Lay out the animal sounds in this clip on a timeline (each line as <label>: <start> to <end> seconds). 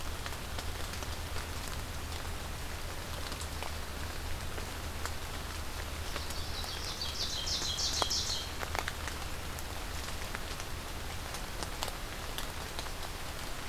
Ovenbird (Seiurus aurocapilla): 6.1 to 8.4 seconds